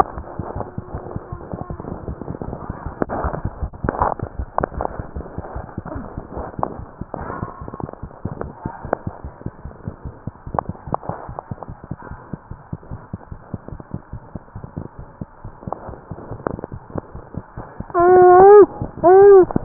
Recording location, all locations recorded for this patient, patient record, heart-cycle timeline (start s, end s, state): tricuspid valve (TV)
aortic valve (AV)+pulmonary valve (PV)+tricuspid valve (TV)+mitral valve (MV)
#Age: Infant
#Sex: Male
#Height: 69.0 cm
#Weight: 7.67 kg
#Pregnancy status: False
#Murmur: Absent
#Murmur locations: nan
#Most audible location: nan
#Systolic murmur timing: nan
#Systolic murmur shape: nan
#Systolic murmur grading: nan
#Systolic murmur pitch: nan
#Systolic murmur quality: nan
#Diastolic murmur timing: nan
#Diastolic murmur shape: nan
#Diastolic murmur grading: nan
#Diastolic murmur pitch: nan
#Diastolic murmur quality: nan
#Outcome: Abnormal
#Campaign: 2015 screening campaign
0.00	8.92	unannotated
8.92	9.04	diastole
9.04	9.10	S1
9.10	9.23	systole
9.23	9.31	S2
9.31	9.44	diastole
9.44	9.51	S1
9.51	9.63	systole
9.63	9.76	S2
9.76	9.86	diastole
9.86	9.96	S1
9.96	10.05	systole
10.05	10.12	S2
10.12	10.24	diastole
10.24	10.33	S1
10.33	10.46	systole
10.46	10.53	S2
10.53	10.66	diastole
10.66	10.78	S1
10.78	10.87	systole
10.87	10.93	S2
10.93	11.06	diastole
11.06	11.14	S1
11.14	11.27	systole
11.27	11.40	S2
11.40	11.50	diastole
11.50	11.60	S1
11.60	11.67	systole
11.67	11.76	S2
11.76	11.88	diastole
11.88	11.97	S1
11.97	12.09	systole
12.09	12.20	S2
12.20	12.30	diastole
12.30	12.40	S1
12.40	12.49	systole
12.49	12.56	S2
12.56	12.71	diastole
12.71	12.78	S1
12.78	12.88	systole
12.88	12.99	S2
12.99	13.12	diastole
13.12	13.19	S1
13.19	13.30	systole
13.30	13.36	S2
13.36	13.52	diastole
13.52	13.58	S1
13.58	13.70	systole
13.70	13.82	S2
13.82	13.92	diastole
13.92	14.02	S1
14.02	14.12	systole
14.12	14.19	S2
14.19	14.33	diastole
14.33	14.39	S1
14.39	14.52	systole
14.52	14.62	S2
14.62	14.75	diastole
14.75	14.84	S1
14.84	14.97	systole
14.97	15.06	S2
15.06	15.20	diastole
15.20	15.27	S1
15.27	15.42	systole
15.42	15.52	S2
15.52	15.65	diastole
15.65	15.74	S1
15.74	15.87	systole
15.87	15.95	S2
15.95	16.05	diastole
16.05	19.65	unannotated